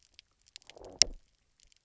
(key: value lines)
label: biophony, low growl
recorder: SoundTrap 300